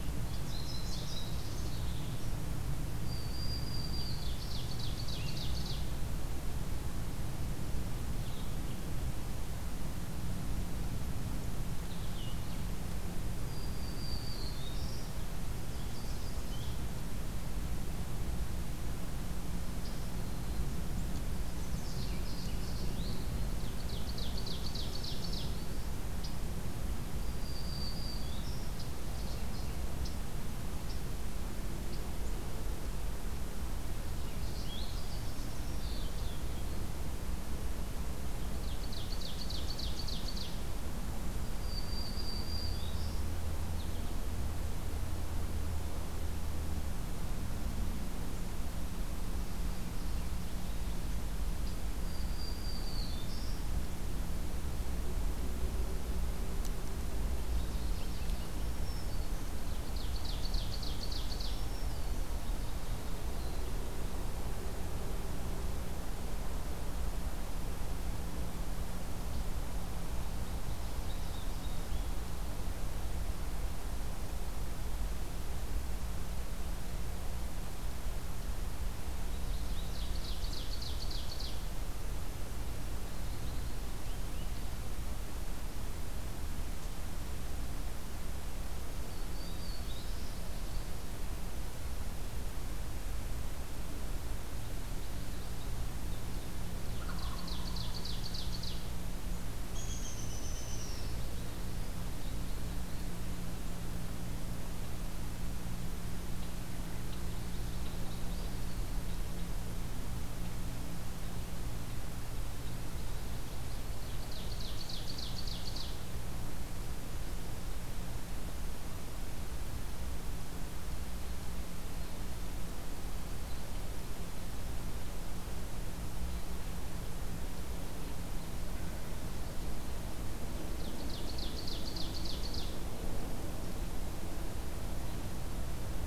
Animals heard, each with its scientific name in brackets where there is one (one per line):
Black-throated Green Warbler (Setophaga virens)
Eastern Wood-Pewee (Contopus virens)
Ovenbird (Seiurus aurocapilla)
Downy Woodpecker (Dryobates pubescens)
American Goldfinch (Spinus tristis)
Blue-headed Vireo (Vireo solitarius)
Wild Turkey (Meleagris gallopavo)